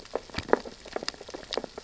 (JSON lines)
{"label": "biophony, sea urchins (Echinidae)", "recorder": "SoundTrap 600 or HydroMoth"}